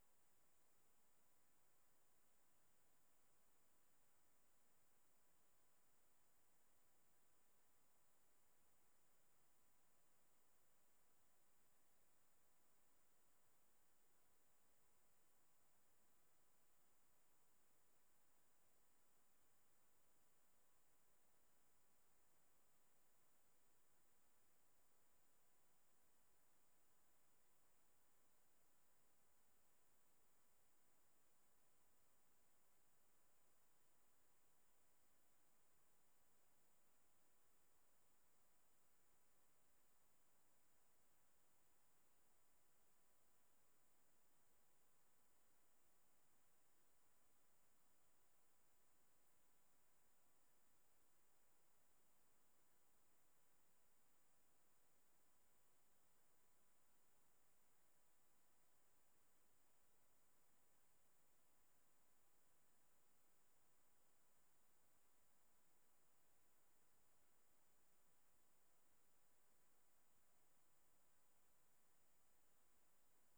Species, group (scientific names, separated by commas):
Tettigonia hispanica, Orthoptera